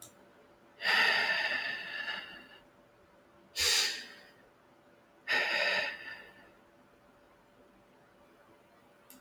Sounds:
Sigh